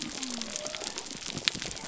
{"label": "biophony", "recorder": "SoundTrap 300"}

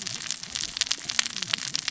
{"label": "biophony, cascading saw", "recorder": "SoundTrap 600 or HydroMoth"}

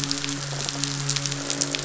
{"label": "biophony, midshipman", "recorder": "SoundTrap 500"}
{"label": "biophony, croak", "recorder": "SoundTrap 500"}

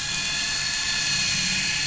{"label": "anthrophony, boat engine", "recorder": "SoundTrap 500"}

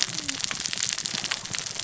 {"label": "biophony, cascading saw", "recorder": "SoundTrap 600 or HydroMoth"}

